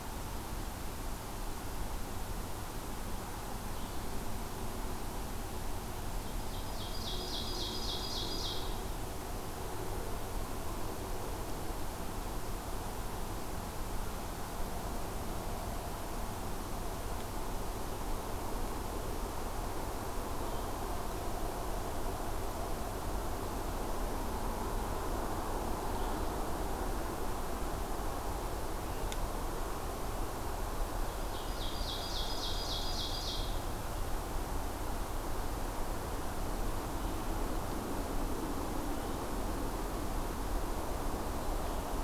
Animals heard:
Blue-headed Vireo (Vireo solitarius), Ovenbird (Seiurus aurocapilla)

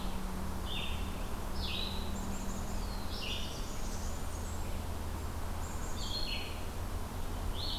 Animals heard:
Red-eyed Vireo (Vireo olivaceus), Blackburnian Warbler (Setophaga fusca), Black-capped Chickadee (Poecile atricapillus), Black-throated Blue Warbler (Setophaga caerulescens)

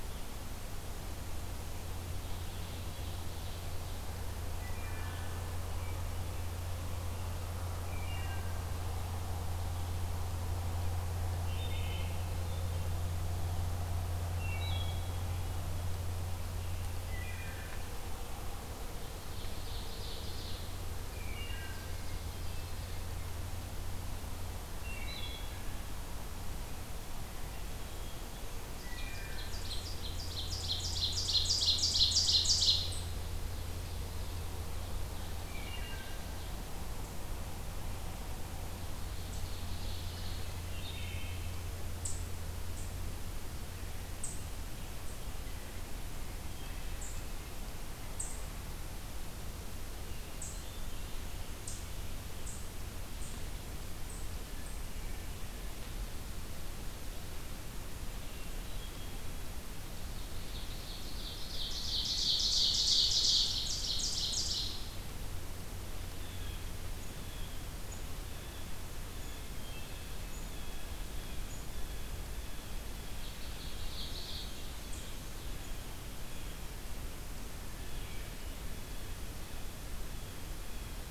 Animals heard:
Ovenbird (Seiurus aurocapilla), Wood Thrush (Hylocichla mustelina), Eastern Chipmunk (Tamias striatus), Hermit Thrush (Catharus guttatus), Blue Jay (Cyanocitta cristata)

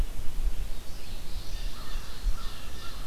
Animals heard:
Red-eyed Vireo (Vireo olivaceus), Ovenbird (Seiurus aurocapilla), American Crow (Corvus brachyrhynchos), Common Yellowthroat (Geothlypis trichas)

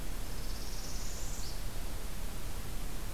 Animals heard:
Northern Parula (Setophaga americana)

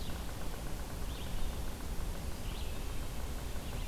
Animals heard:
Yellow-bellied Sapsucker (Sphyrapicus varius), Red-eyed Vireo (Vireo olivaceus)

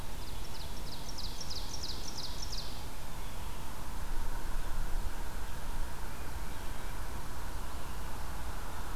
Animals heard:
Ovenbird (Seiurus aurocapilla)

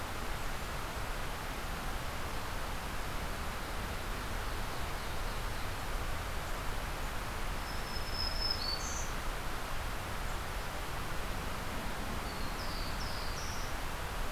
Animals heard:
Black-throated Blue Warbler (Setophaga caerulescens), Ovenbird (Seiurus aurocapilla), Black-throated Green Warbler (Setophaga virens)

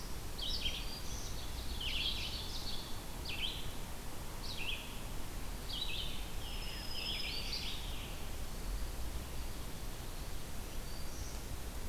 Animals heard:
Scarlet Tanager (Piranga olivacea), Black-throated Green Warbler (Setophaga virens), Red-eyed Vireo (Vireo olivaceus), Ovenbird (Seiurus aurocapilla)

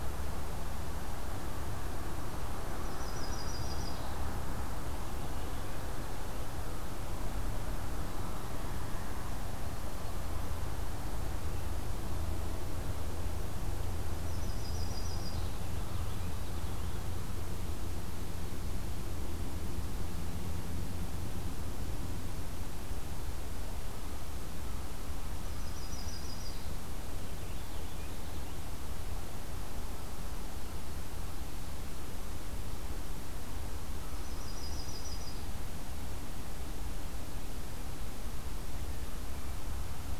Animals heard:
Yellow-rumped Warbler (Setophaga coronata), Purple Finch (Haemorhous purpureus)

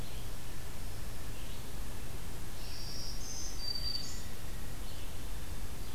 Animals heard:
Red-eyed Vireo (Vireo olivaceus), Black-throated Green Warbler (Setophaga virens)

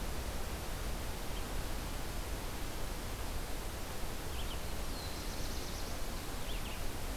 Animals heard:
Black-throated Blue Warbler (Setophaga caerulescens), Red-eyed Vireo (Vireo olivaceus)

